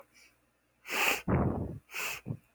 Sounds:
Sniff